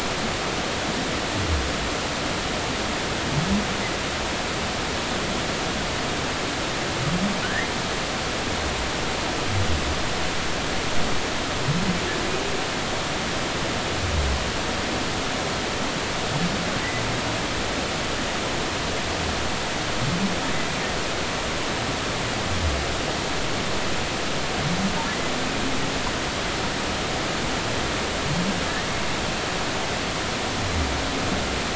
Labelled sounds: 7.4	7.7	humpback whale, 1.4 to 2.1 kHz

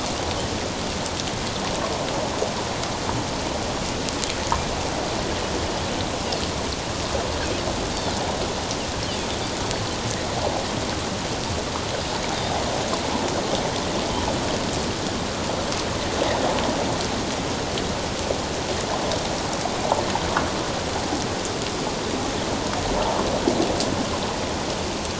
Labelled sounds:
12.3	12.6	Pacific white-sided dolphin, 3.5 to 3.9 kHz

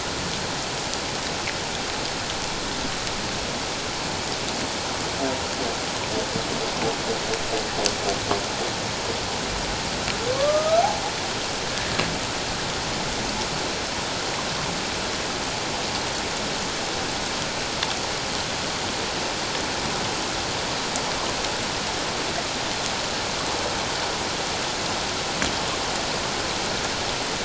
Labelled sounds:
10.3	10.8	humpback whale, 1.1 to 1.4 kHz

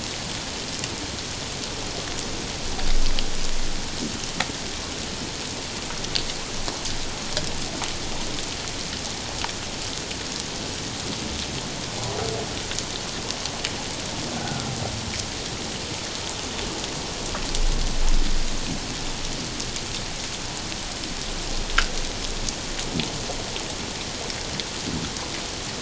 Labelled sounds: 14.4	14.7	humpback whale, 1.3 to 1.6 kHz

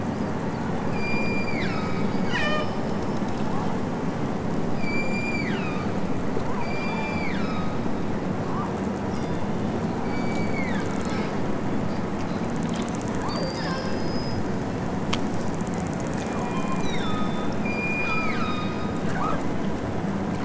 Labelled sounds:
0.8	3.2	killer whale, southern Alaska resident, 0.92 to 8.0 kHz
4.7	5.9	killer whale, southern Alaska resident, 0.92 to 8.0 kHz
6.6	7.9	killer whale, southern Alaska resident, 1.1 to 7.5 kHz
9.1	9.7	killer whale, southern Alaska resident, 2.3 to 6.4 kHz
10.0	11.1	killer whale, southern Alaska resident, 1.1 to 4.9 kHz
13.1	14.5	killer whale, southern Alaska resident, 0.87 to 6.1 kHz
16.2	19.5	killer whale, southern Alaska resident, 0.41 to 6.5 kHz

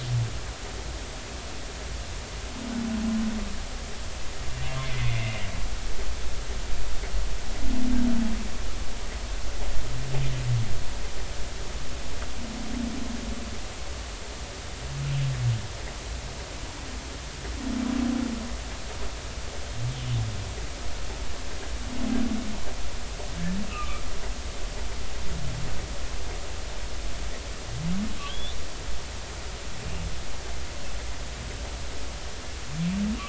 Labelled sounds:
4.8	5.3	humpback whale, 2.0 to 2.3 kHz
23.7	24.0	humpback whale, 1.1 to 1.4 kHz
28.2	28.6	humpback whale, 3.1 to 3.7 kHz

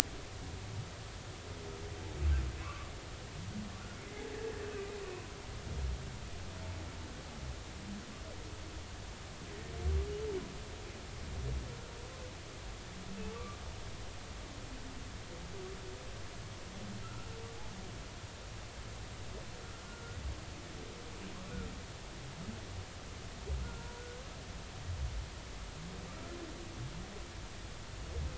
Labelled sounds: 2.6	2.9	humpback whale, 0.99 to 1.6 kHz
4.1	4.3	humpback whale, 1.9 to 2.2 kHz
13.3	13.6	humpback whale, 1.1 to 1.2 kHz
17.0	17.3	humpback whale, 1.3 to 1.5 kHz
23.6	24.0	humpback whale, 1.3 to 1.5 kHz

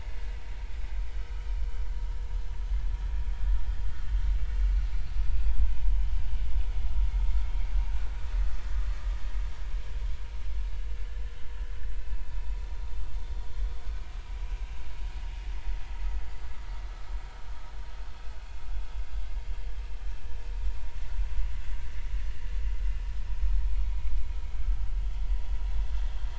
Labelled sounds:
5.3	5.5	vessel noise, 2.4 to 2.7 kHz
8.3	8.6	vessel noise, 1.8 to 2.0 kHz
12.0	12.3	vessel noise, 2.5 to 2.7 kHz

